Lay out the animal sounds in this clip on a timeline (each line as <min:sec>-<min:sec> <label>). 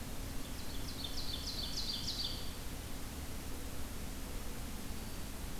0:00.4-0:02.5 Ovenbird (Seiurus aurocapilla)
0:04.7-0:05.5 Black-throated Green Warbler (Setophaga virens)